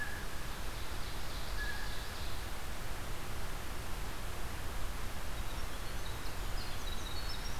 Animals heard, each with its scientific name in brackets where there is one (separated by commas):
Ovenbird (Seiurus aurocapilla), Blue Jay (Cyanocitta cristata), Winter Wren (Troglodytes hiemalis)